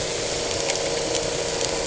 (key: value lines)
label: anthrophony, boat engine
recorder: HydroMoth